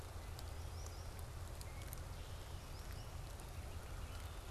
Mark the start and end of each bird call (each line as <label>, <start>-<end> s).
Solitary Sandpiper (Tringa solitaria), 0.4-1.1 s
Solitary Sandpiper (Tringa solitaria), 2.6-3.1 s